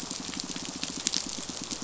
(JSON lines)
{"label": "biophony, pulse", "recorder": "SoundTrap 500"}